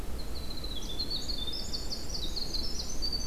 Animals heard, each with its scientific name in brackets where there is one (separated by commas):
Winter Wren (Troglodytes hiemalis)